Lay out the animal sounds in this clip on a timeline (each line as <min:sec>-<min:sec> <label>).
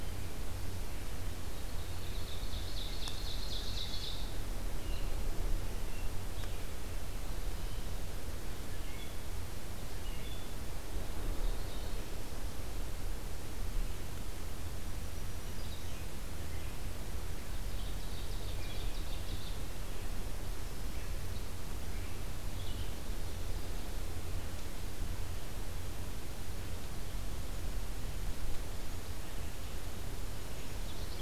0:01.5-0:04.4 Ovenbird (Seiurus aurocapilla)
0:04.7-0:06.7 Red-eyed Vireo (Vireo olivaceus)
0:08.5-0:12.1 Red-eyed Vireo (Vireo olivaceus)
0:14.8-0:16.0 Black-throated Green Warbler (Setophaga virens)
0:17.5-0:19.2 Ovenbird (Seiurus aurocapilla)
0:19.1-0:31.2 Red-eyed Vireo (Vireo olivaceus)